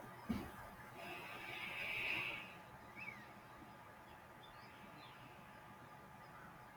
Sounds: Sigh